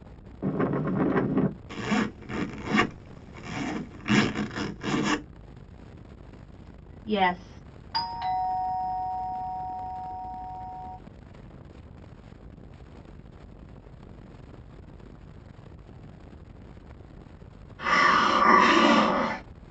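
At the start, you can hear wind. Then, about 2 seconds in, the sound of a zipper is audible. About 7 seconds in, someone says "Yes." Next, about 8 seconds in, the sound of a doorbell can be heard. Finally, about 18 seconds in, hissing is heard.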